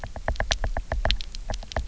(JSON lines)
{"label": "biophony, knock", "recorder": "SoundTrap 300"}